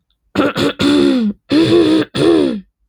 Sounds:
Throat clearing